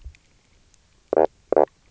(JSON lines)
{"label": "biophony, knock croak", "recorder": "SoundTrap 300"}